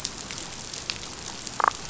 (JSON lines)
{"label": "biophony, damselfish", "recorder": "SoundTrap 500"}